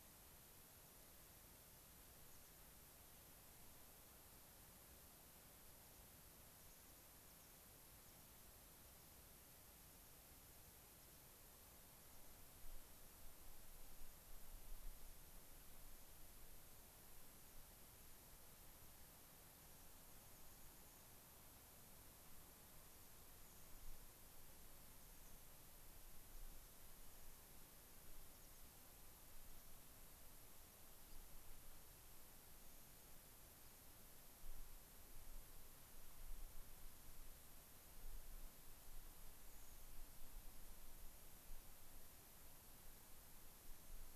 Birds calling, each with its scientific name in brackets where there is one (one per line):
American Pipit (Anthus rubescens)
unidentified bird